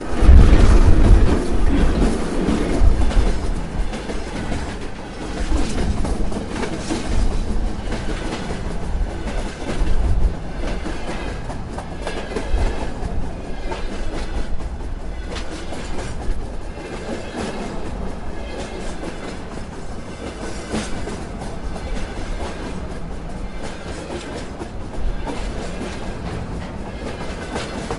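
A train passes by with a metallic, blade-like slicing rhythm. 0.2 - 28.0

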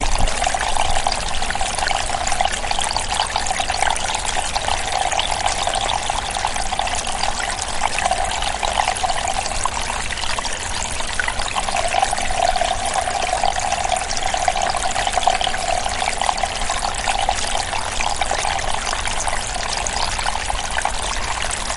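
A small stream flows gently with a light, clear, and continuous water sound. 0.0 - 21.8

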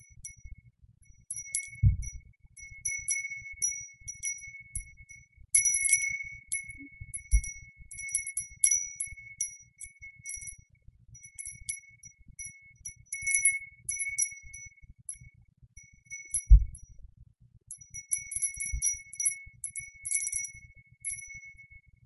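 A single chime tinkling quietly with a high-pitched tone. 0.2 - 0.7
A chime tinkling twice with a high-pitched tone. 1.2 - 2.3
A single chime tinkling multiple times with a high-pitched tone. 2.7 - 5.0
A single high-pitched chime is tinkling messily. 5.4 - 6.8
A single chime tinkling quietly with a high-pitched tone. 7.1 - 7.7
A single chime tinkling repeatedly with a high-pitched tone. 8.0 - 10.7
A single chime tinkling quietly with a high-pitched tone. 11.2 - 12.1
A single chime tinkling quietly in two high-pitched bursts. 12.9 - 14.7
A single chime tinkling quietly with a high-pitched tone. 16.0 - 16.8
A single high-pitched chime tinkles repeatedly with no pattern. 17.7 - 20.7
A single chime tinkling quietly with a high-pitched tone. 21.1 - 21.6

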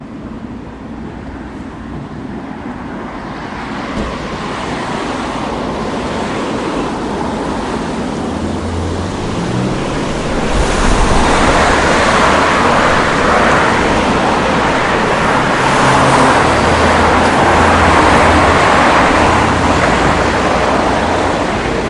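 Wind blowing through streets. 0.0 - 21.9
Cars driving nearby outdoors. 0.0 - 21.9

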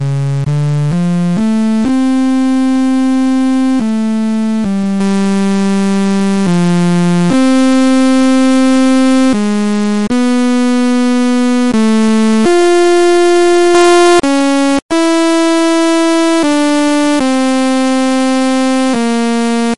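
Electronic music is playing. 0.0 - 19.7

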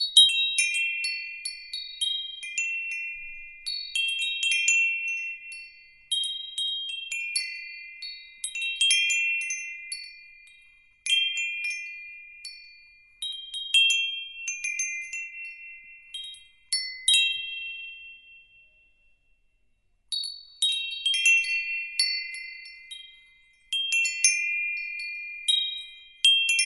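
A wind chime chimes rhythmically and ends slowly in an echo. 0.0 - 20.0
A wind chime produces an arrhythmic chiming sound. 20.0 - 26.6

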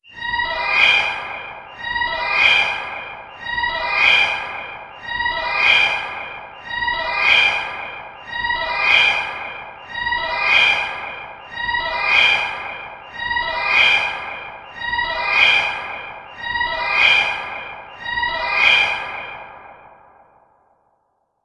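A futuristic emergency alien siren wails sharply in a steady, reverberating pattern. 0.0 - 19.9

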